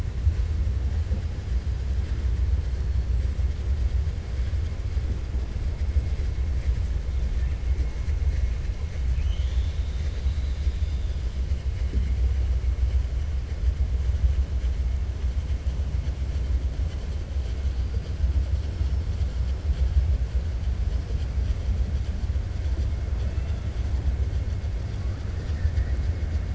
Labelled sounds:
23.1	23.6	killer whale, 1.4 to 3.7 kHz

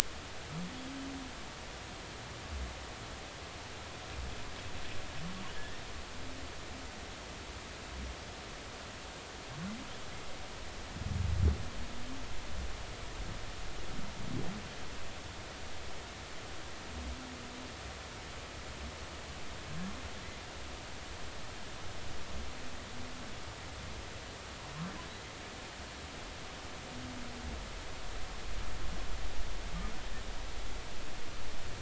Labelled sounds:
5.5	5.8	humpback whale, 1.6 to 1.9 kHz

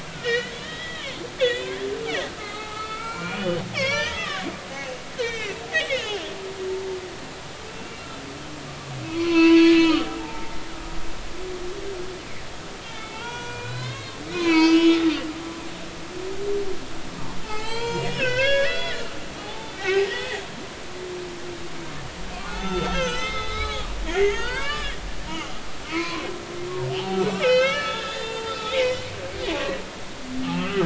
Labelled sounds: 0.2	4.4	humpback whale, 0.80 to 6.2 kHz
4.8	6.2	humpback whale, 1.7 to 4.3 kHz
7.7	8.1	humpback whale, 2.7 to 2.8 kHz
9.1	10.7	humpback whale, 0.80 to 4.5 kHz
12.9	16.0	humpback whale, 0.83 to 6.3 kHz
17.4	19.1	humpback whale, 0.80 to 8.0 kHz
19.4	20.4	humpback whale, 0.80 to 3.6 kHz
22.4	25.0	humpback whale, 0.90 to 6.6 kHz
25.9	26.3	humpback whale, 0.90 to 4.5 kHz
27.0	29.1	humpback whale, 0.80 to 6.8 kHz
29.5	30.8	humpback whale, 1.1 to 3.6 kHz

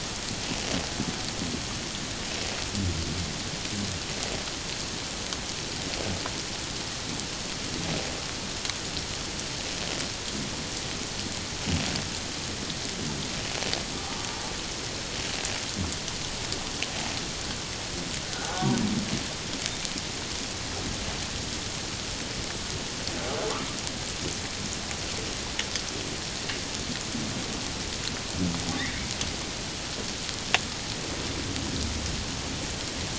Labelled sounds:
18.3	18.5	humpback whale, 1.4 to 1.6 kHz
28.8	29.0	humpback whale, 1.7 to 2.3 kHz

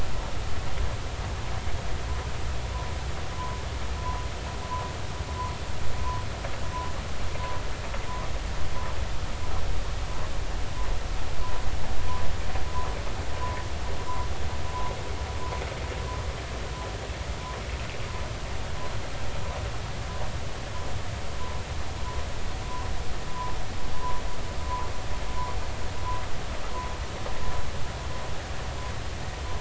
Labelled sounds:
4.0	4.2	humpback whale, 0.93 to 1.1 kHz
24.0	24.2	humpback whale, 0.93 to 1.1 kHz

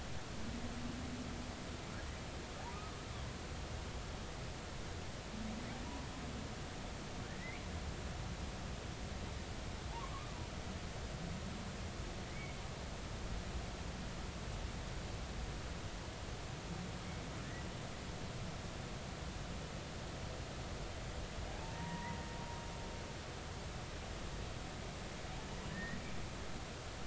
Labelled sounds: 2.7	3.0	humpback whale, 1.1 to 1.3 kHz
7.4	7.6	humpback whale, 1.9 to 2.4 kHz
9.9	10.3	humpback whale, 0.80 to 1.2 kHz
12.3	12.6	humpback whale, 2.0 to 2.3 kHz
21.6	22.2	humpback whale, 0.86 to 2.1 kHz
25.7	26.0	humpback whale, 1.7 to 2.0 kHz

